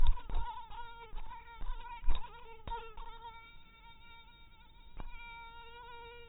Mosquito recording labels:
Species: mosquito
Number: one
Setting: cup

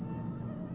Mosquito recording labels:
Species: Aedes albopictus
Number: several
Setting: insect culture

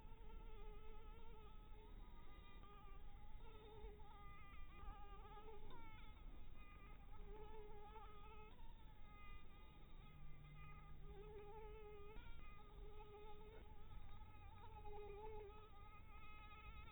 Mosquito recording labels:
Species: Anopheles dirus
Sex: female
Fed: unfed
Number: one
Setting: cup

